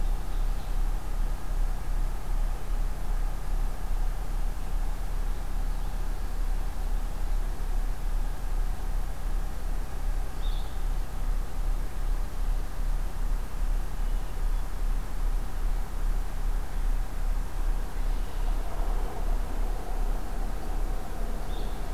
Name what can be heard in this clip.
Ovenbird, Blue-headed Vireo